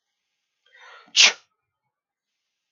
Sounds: Sneeze